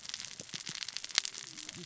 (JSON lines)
{"label": "biophony, cascading saw", "recorder": "SoundTrap 600 or HydroMoth"}